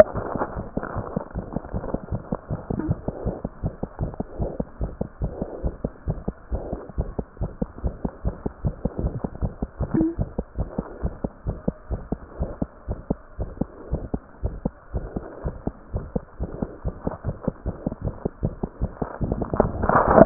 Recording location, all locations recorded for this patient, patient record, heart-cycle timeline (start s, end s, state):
pulmonary valve (PV)
aortic valve (AV)+pulmonary valve (PV)
#Age: Infant
#Sex: Male
#Height: 65.0 cm
#Weight: 5.7 kg
#Pregnancy status: False
#Murmur: Present
#Murmur locations: pulmonary valve (PV)
#Most audible location: pulmonary valve (PV)
#Systolic murmur timing: Early-systolic
#Systolic murmur shape: Decrescendo
#Systolic murmur grading: I/VI
#Systolic murmur pitch: Low
#Systolic murmur quality: Harsh
#Diastolic murmur timing: nan
#Diastolic murmur shape: nan
#Diastolic murmur grading: nan
#Diastolic murmur pitch: nan
#Diastolic murmur quality: nan
#Outcome: Abnormal
#Campaign: 2015 screening campaign
0.00	10.42	unannotated
10.42	10.58	diastole
10.58	10.68	S1
10.68	10.77	systole
10.77	10.88	S2
10.88	11.04	diastole
11.04	11.14	S1
11.14	11.24	systole
11.24	11.32	S2
11.32	11.46	diastole
11.46	11.58	S1
11.58	11.68	systole
11.68	11.74	S2
11.74	11.92	diastole
11.92	12.02	S1
12.02	12.10	systole
12.10	12.18	S2
12.18	12.40	diastole
12.40	12.50	S1
12.50	12.61	systole
12.61	12.70	S2
12.70	12.90	diastole
12.90	13.00	S1
13.00	13.09	systole
13.09	13.18	S2
13.18	13.37	diastole
13.37	13.49	S1
13.49	13.60	systole
13.60	13.70	S2
13.70	13.90	diastole
13.90	14.02	S1
14.02	14.11	systole
14.11	14.22	S2
14.22	14.41	diastole
14.41	14.56	S1
14.56	14.63	systole
14.63	14.74	S2
14.74	14.92	diastole
14.92	15.06	S1
15.06	15.14	systole
15.14	15.24	S2
15.24	15.44	diastole
15.44	15.56	S1
15.56	15.65	systole
15.65	15.74	S2
15.74	15.94	diastole
15.94	16.04	S1
16.04	16.14	systole
16.14	16.22	S2
16.22	16.40	diastole
16.40	16.50	S1
16.50	16.61	systole
16.61	16.70	S2
16.70	16.83	diastole
16.83	16.95	S1
16.95	17.05	systole
17.05	17.14	S2
17.14	17.25	diastole
17.25	17.36	S1
17.36	17.45	systole
17.45	17.52	S2
17.52	17.65	diastole
17.65	17.76	S1
17.76	17.85	systole
17.85	17.94	S2
17.94	18.03	diastole
18.03	18.14	S1
18.14	18.24	systole
18.24	18.30	S2
18.30	18.42	diastole
18.42	18.54	S1
18.54	18.62	systole
18.62	18.69	S2
18.69	18.82	diastole
18.82	20.26	unannotated